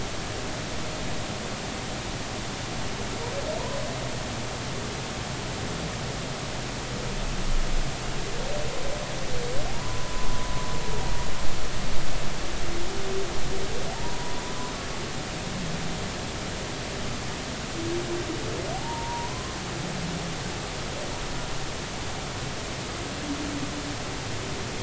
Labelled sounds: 9.7	10.3	humpback whale, 0.86 to 1.1 kHz
13.9	14.7	humpback whale, 0.80 to 1.1 kHz
18.7	19.6	humpback whale, 0.80 to 1.1 kHz

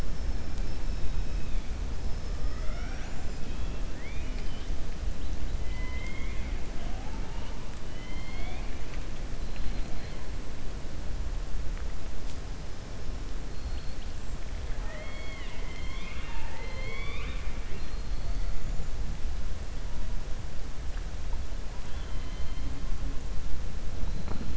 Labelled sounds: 3.2	4.7	killer whale, 1.8 to 5.2 kHz
5.6	6.5	killer whale, 1.0 to 4.5 kHz
7.8	9.0	killer whale, 0.67 to 4.4 kHz
21.8	22.7	killer whale, 2.1 to 4.2 kHz

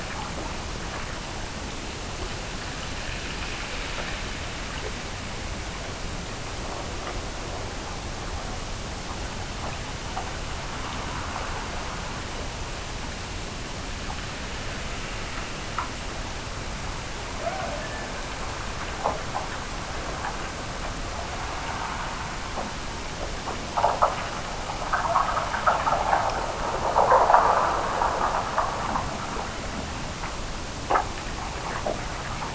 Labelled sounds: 17.3	18.4	killer whale, Bigg's (transient), Gulf of Alaska transient, 0.44 to 1.8 kHz

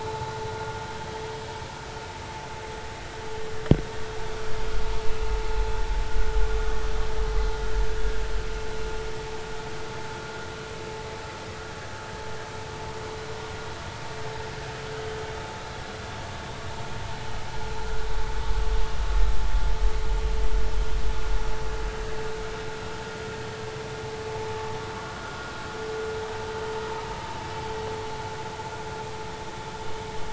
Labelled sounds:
25.2	25.5	vessel noise, 1.3 to 1.5 kHz

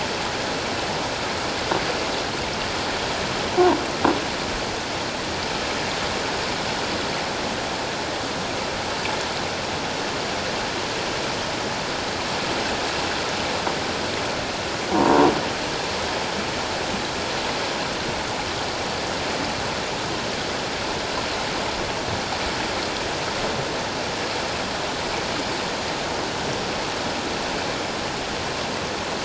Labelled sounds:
14.9	15.3	croaking sound likely from a nearby submerged object, 0.88 to 1.1 kHz

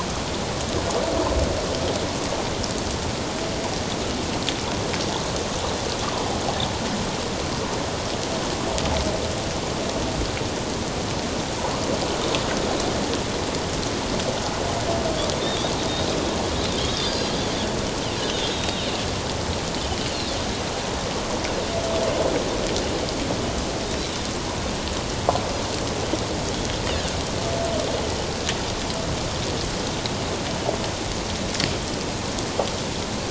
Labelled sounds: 15.4	15.7	Pacific white-sided dolphin, 3.3 to 3.8 kHz
16.9	17.3	Pacific white-sided dolphin, 3.4 to 5.1 kHz
18.5	18.9	Pacific white-sided dolphin, 3.7 to 3.8 kHz
20.1	20.4	Pacific white-sided dolphin, 3.4 to 4.3 kHz

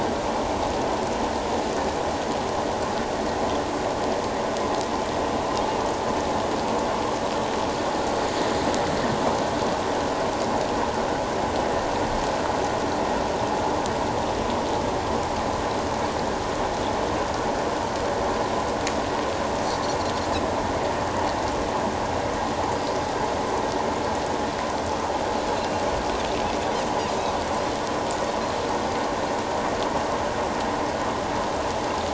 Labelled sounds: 25.6	25.8	Pacific white-sided dolphin, 2.7 to 2.8 kHz

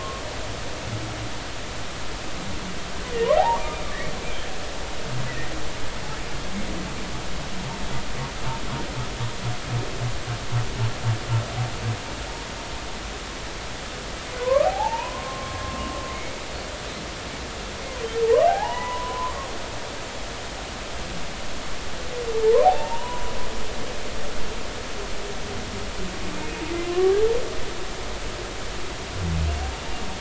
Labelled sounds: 0.5	1.0	humpback whale, 0.99 to 1.2 kHz
3.4	3.8	humpback whale, 0.80 to 1.3 kHz
5.3	5.5	humpback whale, 1.8 to 2.1 kHz
14.4	15.9	humpback whale, 0.80 to 1.3 kHz
18.2	19.5	humpback whale, 0.80 to 2.0 kHz
22.4	23.3	humpback whale, 0.80 to 1.2 kHz
26.9	27.2	humpback whale, 0.99 to 1.2 kHz

